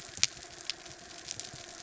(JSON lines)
{"label": "anthrophony, boat engine", "recorder": "SoundTrap 300"}